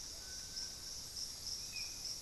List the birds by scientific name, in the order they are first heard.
Crypturellus soui, Turdus hauxwelli